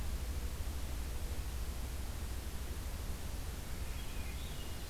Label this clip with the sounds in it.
Swainson's Thrush